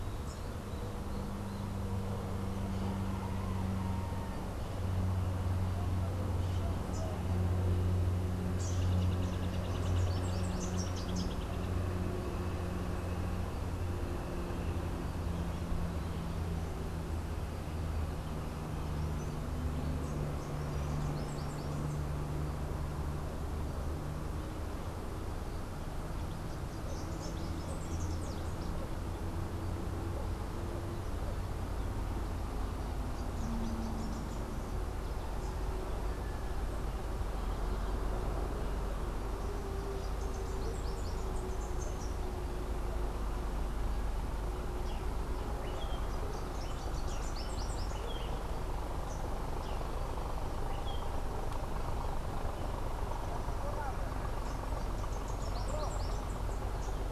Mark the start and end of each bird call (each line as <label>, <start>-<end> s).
Hoffmann's Woodpecker (Melanerpes hoffmannii), 9.2-11.8 s
Rufous-capped Warbler (Basileuterus rufifrons), 9.7-11.7 s
Rufous-capped Warbler (Basileuterus rufifrons), 20.5-22.1 s
Rufous-capped Warbler (Basileuterus rufifrons), 26.7-28.7 s
Rufous-capped Warbler (Basileuterus rufifrons), 39.8-42.4 s
Melodious Blackbird (Dives dives), 44.7-52.8 s
Rufous-capped Warbler (Basileuterus rufifrons), 46.2-48.2 s
Rufous-capped Warbler (Basileuterus rufifrons), 54.8-57.1 s